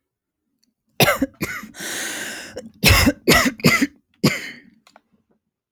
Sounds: Cough